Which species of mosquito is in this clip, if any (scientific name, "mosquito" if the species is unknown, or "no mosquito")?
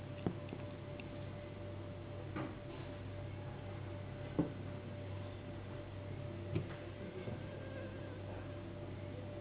Anopheles gambiae s.s.